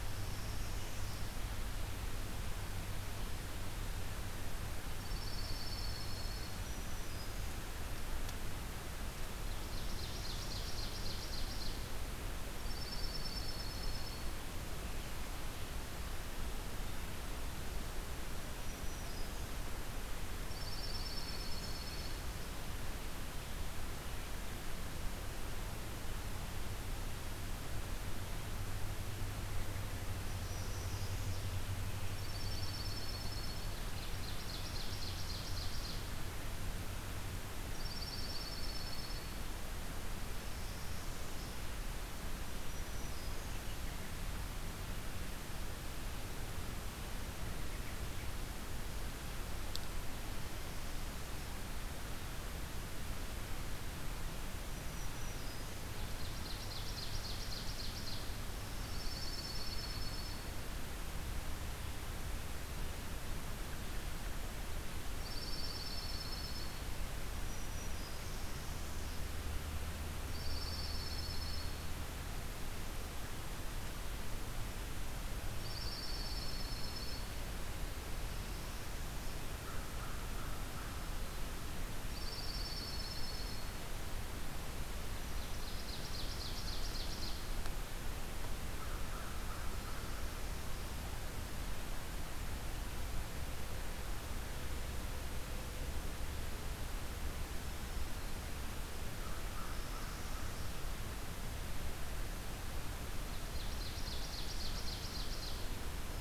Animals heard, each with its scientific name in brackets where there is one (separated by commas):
Dark-eyed Junco (Junco hyemalis), American Crow (Corvus brachyrhynchos), Ovenbird (Seiurus aurocapilla), Northern Parula (Setophaga americana), Black-throated Green Warbler (Setophaga virens)